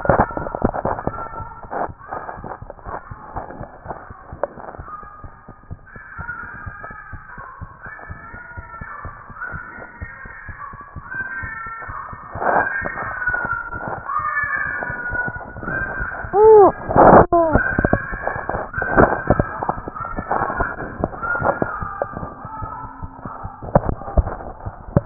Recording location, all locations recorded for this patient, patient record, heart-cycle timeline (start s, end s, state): pulmonary valve (PV)
aortic valve (AV)+pulmonary valve (PV)+mitral valve (MV)
#Age: Child
#Sex: Male
#Height: 78.0 cm
#Weight: 12.5 kg
#Pregnancy status: False
#Murmur: Unknown
#Murmur locations: nan
#Most audible location: nan
#Systolic murmur timing: nan
#Systolic murmur shape: nan
#Systolic murmur grading: nan
#Systolic murmur pitch: nan
#Systolic murmur quality: nan
#Diastolic murmur timing: nan
#Diastolic murmur shape: nan
#Diastolic murmur grading: nan
#Diastolic murmur pitch: nan
#Diastolic murmur quality: nan
#Outcome: Abnormal
#Campaign: 2014 screening campaign
0.00	2.31	unannotated
2.31	2.38	diastole
2.38	2.48	S1
2.48	2.62	systole
2.62	2.72	S2
2.72	2.88	diastole
2.88	2.98	S1
2.98	3.10	systole
3.10	3.18	S2
3.18	3.34	diastole
3.34	3.44	S1
3.44	3.58	systole
3.58	3.68	S2
3.68	3.86	diastole
3.86	3.96	S1
3.96	4.10	systole
4.10	4.20	S2
4.20	4.33	diastole
4.33	4.42	S1
4.42	4.58	systole
4.58	4.67	S2
4.67	4.80	diastole
4.80	4.88	S1
4.88	5.02	systole
5.02	5.12	S2
5.12	5.24	diastole
5.24	5.34	S1
5.34	5.48	systole
5.48	5.56	S2
5.56	5.70	diastole
5.70	25.06	unannotated